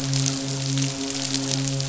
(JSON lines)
{"label": "biophony, midshipman", "recorder": "SoundTrap 500"}